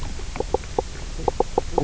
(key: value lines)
label: biophony, knock croak
recorder: SoundTrap 300